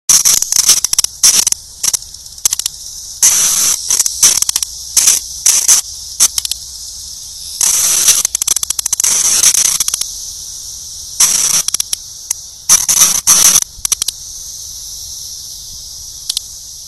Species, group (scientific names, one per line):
Magicicada cassini
Cicadidae